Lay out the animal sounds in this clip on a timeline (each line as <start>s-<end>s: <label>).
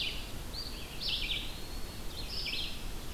0.0s-3.1s: Red-eyed Vireo (Vireo olivaceus)
0.9s-2.2s: Eastern Wood-Pewee (Contopus virens)